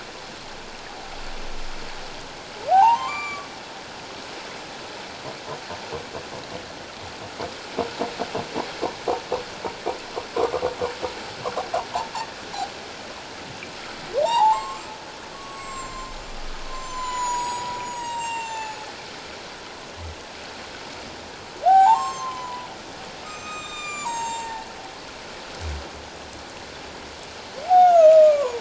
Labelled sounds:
2.7	3.5	humpback whale, 0.78 to 7.1 kHz
14.2	18.8	humpback whale, 0.78 to 8.0 kHz
21.6	22.7	humpback whale, 0.78 to 7.5 kHz
23.2	24.8	humpback whale, 0.78 to 7.9 kHz
27.7	28.6	humpback whale, 0.78 to 7.0 kHz

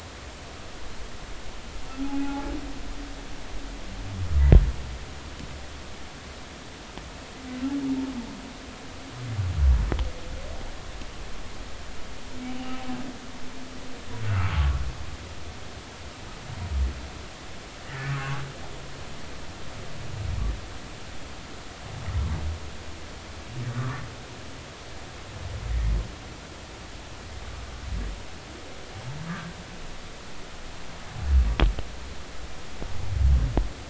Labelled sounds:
2.2	2.5	humpback whale, 0.80 to 0.90 kHz
12.5	12.8	humpback whale, 2.7 to 3.0 kHz
14.2	14.8	humpback whale, 1.1 to 1.5 kHz
17.9	18.5	humpback whale, 1.1 to 2.0 kHz
23.7	24.0	humpback whale, 0.99 to 1.5 kHz

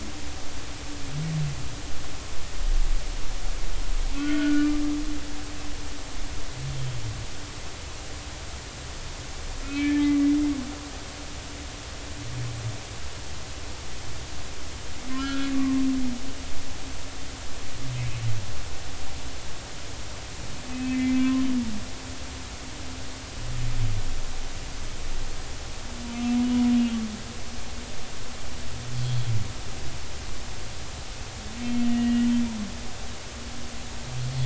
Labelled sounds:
4.1	4.7	humpback whale, 1.4 to 1.5 kHz
9.6	10.1	humpback whale, 1.7 to 2.4 kHz
15.2	15.8	humpback whale, 1.0 to 3.4 kHz
20.7	21.4	humpback whale, 0.99 to 2.6 kHz
29.0	29.3	humpback whale, 3.1 to 3.4 kHz
31.8	32.3	humpback whale, 1.9 to 2.9 kHz

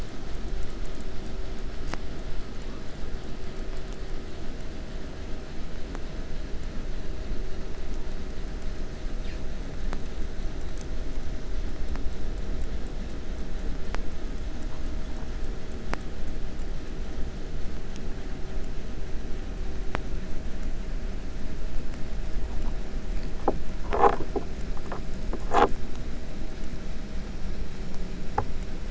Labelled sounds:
9.2	9.5	killer whale, 1.0 to 8.0 kHz

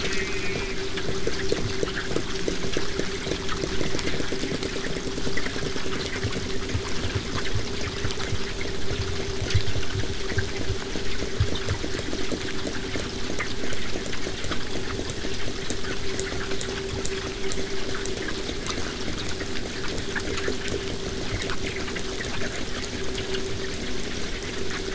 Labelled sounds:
0.0	0.8	killer whale, southern resident, J pod, call S04, 1.5 to 2.8 kHz
14.4	18.8	killer whale, southern resident, 4.3 to 8.0 kHz

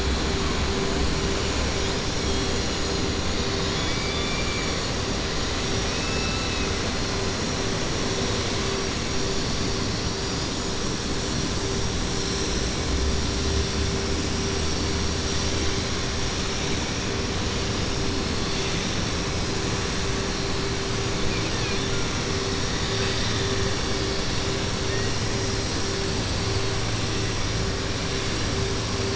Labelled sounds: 21.2	21.8	killer whale, 1.6 to 3.5 kHz

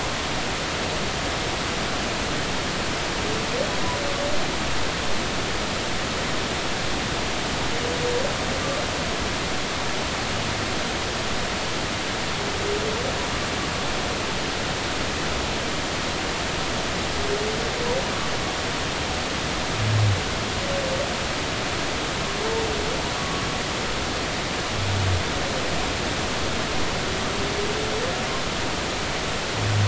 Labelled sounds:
23.2	23.4	humpback whale, 1.1 to 1.2 kHz

